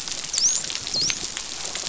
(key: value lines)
label: biophony, dolphin
recorder: SoundTrap 500